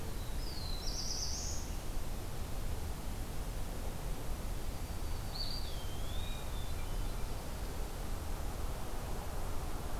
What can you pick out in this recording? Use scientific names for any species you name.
Setophaga caerulescens, Setophaga virens, Contopus virens, Catharus guttatus